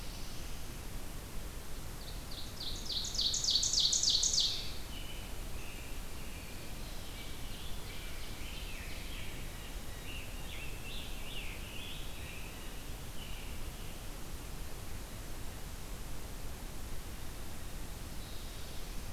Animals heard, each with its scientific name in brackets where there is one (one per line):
Black-throated Blue Warbler (Setophaga caerulescens)
Blue Jay (Cyanocitta cristata)
American Robin (Turdus migratorius)
Scarlet Tanager (Piranga olivacea)
Rose-breasted Grosbeak (Pheucticus ludovicianus)
Ovenbird (Seiurus aurocapilla)